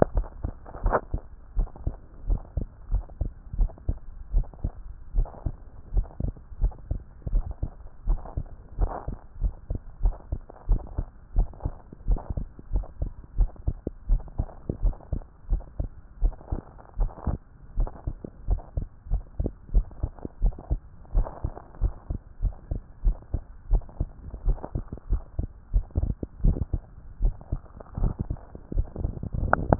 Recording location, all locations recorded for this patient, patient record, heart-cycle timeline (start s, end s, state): tricuspid valve (TV)
pulmonary valve (PV)+tricuspid valve (TV)+mitral valve (MV)
#Age: Adolescent
#Sex: Male
#Height: 153.0 cm
#Weight: 33.3 kg
#Pregnancy status: False
#Murmur: Absent
#Murmur locations: nan
#Most audible location: nan
#Systolic murmur timing: nan
#Systolic murmur shape: nan
#Systolic murmur grading: nan
#Systolic murmur pitch: nan
#Systolic murmur quality: nan
#Diastolic murmur timing: nan
#Diastolic murmur shape: nan
#Diastolic murmur grading: nan
#Diastolic murmur pitch: nan
#Diastolic murmur quality: nan
#Outcome: Abnormal
#Campaign: 2014 screening campaign
0.00	1.25	unannotated
1.25	1.56	diastole
1.56	1.68	S1
1.68	1.86	systole
1.86	1.94	S2
1.94	2.28	diastole
2.28	2.40	S1
2.40	2.56	systole
2.56	2.66	S2
2.66	2.92	diastole
2.92	3.04	S1
3.04	3.20	systole
3.20	3.30	S2
3.30	3.58	diastole
3.58	3.70	S1
3.70	3.88	systole
3.88	3.98	S2
3.98	4.32	diastole
4.32	4.46	S1
4.46	4.64	systole
4.64	4.72	S2
4.72	5.14	diastole
5.14	5.28	S1
5.28	5.44	systole
5.44	5.54	S2
5.54	5.94	diastole
5.94	6.06	S1
6.06	6.22	systole
6.22	6.32	S2
6.32	6.62	diastole
6.62	6.72	S1
6.72	6.90	systole
6.90	7.00	S2
7.00	7.32	diastole
7.32	7.44	S1
7.44	7.62	systole
7.62	7.70	S2
7.70	8.06	diastole
8.06	8.20	S1
8.20	8.36	systole
8.36	8.46	S2
8.46	8.80	diastole
8.80	8.92	S1
8.92	9.08	systole
9.08	9.16	S2
9.16	9.42	diastole
9.42	9.54	S1
9.54	9.70	systole
9.70	9.80	S2
9.80	10.02	diastole
10.02	10.14	S1
10.14	10.30	systole
10.30	10.40	S2
10.40	10.68	diastole
10.68	10.80	S1
10.80	10.96	systole
10.96	11.06	S2
11.06	11.36	diastole
11.36	11.48	S1
11.48	11.64	systole
11.64	11.74	S2
11.74	12.08	diastole
12.08	12.20	S1
12.20	12.36	systole
12.36	12.46	S2
12.46	12.72	diastole
12.72	12.86	S1
12.86	13.00	systole
13.00	13.10	S2
13.10	13.38	diastole
13.38	13.50	S1
13.50	13.66	systole
13.66	13.76	S2
13.76	14.08	diastole
14.08	14.22	S1
14.22	14.38	systole
14.38	14.48	S2
14.48	14.82	diastole
14.82	14.94	S1
14.94	15.12	systole
15.12	15.22	S2
15.22	15.50	diastole
15.50	15.62	S1
15.62	15.80	systole
15.80	15.88	S2
15.88	16.22	diastole
16.22	16.34	S1
16.34	16.52	systole
16.52	16.60	S2
16.60	16.98	diastole
16.98	17.10	S1
17.10	17.28	systole
17.28	17.38	S2
17.38	17.78	diastole
17.78	17.90	S1
17.90	18.06	systole
18.06	18.16	S2
18.16	18.48	diastole
18.48	18.60	S1
18.60	18.76	systole
18.76	18.86	S2
18.86	19.10	diastole
19.10	19.22	S1
19.22	19.40	systole
19.40	19.50	S2
19.50	19.72	diastole
19.72	19.86	S1
19.86	20.02	systole
20.02	20.10	S2
20.10	20.42	diastole
20.42	20.54	S1
20.54	20.70	systole
20.70	20.80	S2
20.80	21.14	diastole
21.14	21.26	S1
21.26	21.44	systole
21.44	21.52	S2
21.52	21.82	diastole
21.82	21.94	S1
21.94	22.10	systole
22.10	22.20	S2
22.20	22.42	diastole
22.42	22.54	S1
22.54	22.70	systole
22.70	22.80	S2
22.80	23.04	diastole
23.04	23.16	S1
23.16	23.32	systole
23.32	23.42	S2
23.42	23.70	diastole
23.70	23.82	S1
23.82	24.00	systole
24.00	24.08	S2
24.08	24.46	diastole
24.46	24.58	S1
24.58	24.74	systole
24.74	24.84	S2
24.84	25.10	diastole
25.10	25.22	S1
25.22	25.38	systole
25.38	25.48	S2
25.48	25.72	diastole
25.72	25.84	S1
25.84	26.00	systole
26.00	26.14	S2
26.14	26.42	diastole
26.42	26.56	S1
26.56	26.72	systole
26.72	26.82	S2
26.82	27.22	diastole
27.22	27.34	S1
27.34	27.52	systole
27.52	27.60	S2
27.60	28.00	diastole
28.00	29.79	unannotated